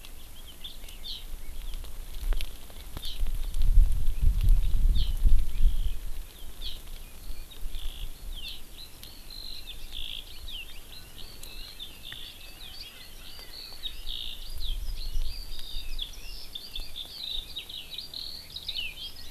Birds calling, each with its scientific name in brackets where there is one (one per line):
Eurasian Skylark (Alauda arvensis)